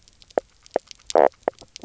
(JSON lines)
{"label": "biophony, knock croak", "recorder": "SoundTrap 300"}